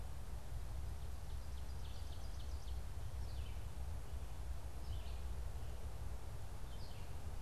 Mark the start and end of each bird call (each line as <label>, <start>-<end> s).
Red-eyed Vireo (Vireo olivaceus), 0.0-7.4 s
Ovenbird (Seiurus aurocapilla), 1.3-2.9 s